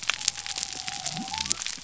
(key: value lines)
label: biophony
recorder: SoundTrap 300